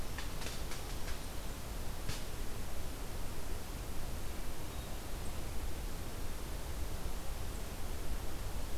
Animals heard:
forest ambience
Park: Marsh-Billings-Rockefeller National Historical Park